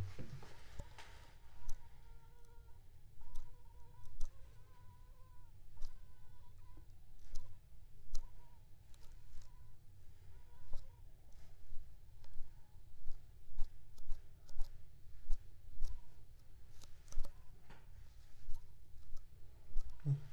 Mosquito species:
Aedes aegypti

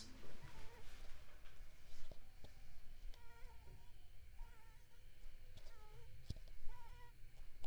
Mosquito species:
Mansonia africanus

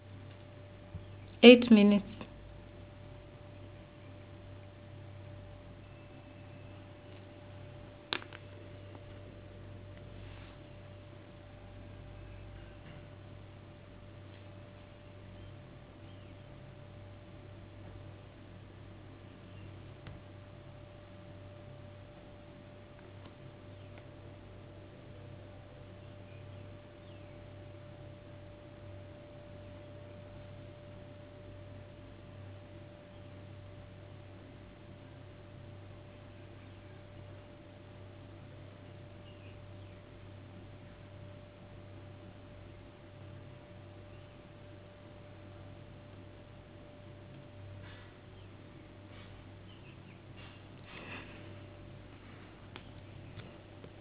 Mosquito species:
no mosquito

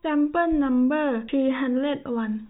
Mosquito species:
no mosquito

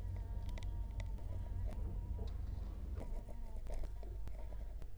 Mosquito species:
Culex quinquefasciatus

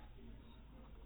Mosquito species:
mosquito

